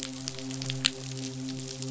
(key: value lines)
label: biophony, midshipman
recorder: SoundTrap 500